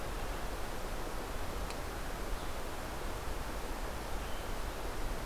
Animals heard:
forest ambience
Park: Hubbard Brook Experimental Forest